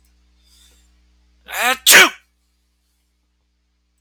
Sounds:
Sneeze